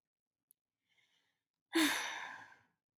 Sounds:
Sigh